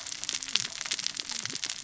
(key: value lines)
label: biophony, cascading saw
recorder: SoundTrap 600 or HydroMoth